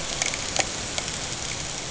{"label": "ambient", "recorder": "HydroMoth"}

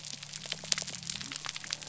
{"label": "biophony", "recorder": "SoundTrap 300"}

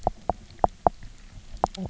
{"label": "biophony, knock croak", "recorder": "SoundTrap 300"}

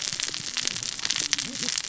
{"label": "biophony, cascading saw", "recorder": "SoundTrap 600 or HydroMoth"}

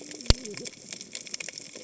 {"label": "biophony, cascading saw", "recorder": "HydroMoth"}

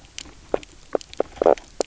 {"label": "biophony, knock croak", "recorder": "SoundTrap 300"}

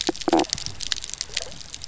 {"label": "biophony, stridulation", "recorder": "SoundTrap 300"}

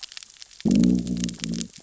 {"label": "biophony, growl", "recorder": "SoundTrap 600 or HydroMoth"}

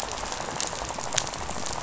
{"label": "biophony, rattle", "recorder": "SoundTrap 500"}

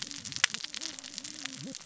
{"label": "biophony, cascading saw", "recorder": "SoundTrap 600 or HydroMoth"}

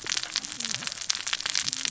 {"label": "biophony, cascading saw", "recorder": "SoundTrap 600 or HydroMoth"}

